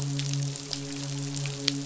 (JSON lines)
{"label": "biophony, midshipman", "recorder": "SoundTrap 500"}